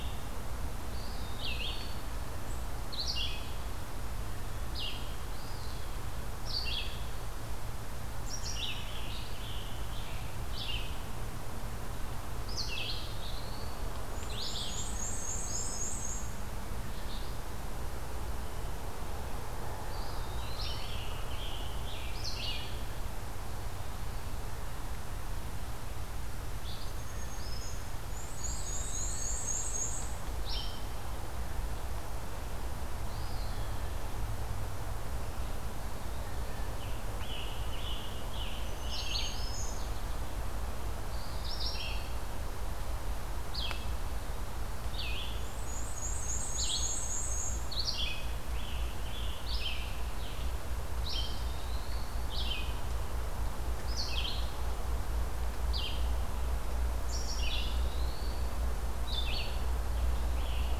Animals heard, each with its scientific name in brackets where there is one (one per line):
American Goldfinch (Spinus tristis)
Black-and-white Warbler (Mniotilta varia)
Scarlet Tanager (Piranga olivacea)
Eastern Wood-Pewee (Contopus virens)
Black-throated Green Warbler (Setophaga virens)
Red-eyed Vireo (Vireo olivaceus)